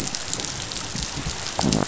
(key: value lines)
label: biophony
recorder: SoundTrap 500